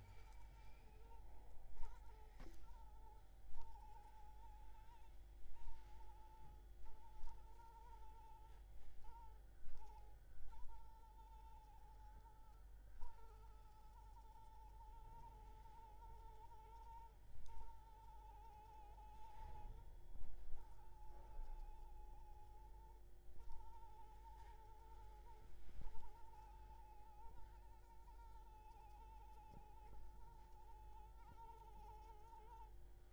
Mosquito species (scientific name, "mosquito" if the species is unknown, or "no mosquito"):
Anopheles arabiensis